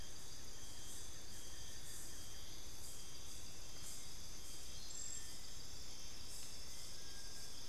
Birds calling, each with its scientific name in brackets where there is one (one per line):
Buff-throated Woodcreeper (Xiphorhynchus guttatus)